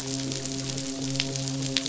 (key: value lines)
label: biophony, midshipman
recorder: SoundTrap 500